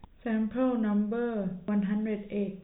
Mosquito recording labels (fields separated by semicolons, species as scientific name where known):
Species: no mosquito; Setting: cup